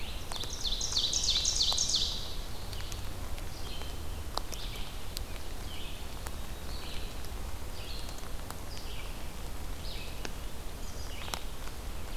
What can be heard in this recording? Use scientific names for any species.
Seiurus aurocapilla, Vireo olivaceus, Poecile atricapillus